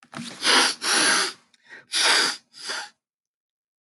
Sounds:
Sniff